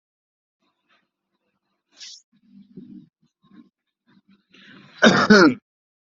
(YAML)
expert_labels:
- quality: good
  cough_type: wet
  dyspnea: false
  wheezing: false
  stridor: false
  choking: false
  congestion: false
  nothing: true
  diagnosis: healthy cough
  severity: pseudocough/healthy cough
gender: female
respiratory_condition: false
fever_muscle_pain: false
status: healthy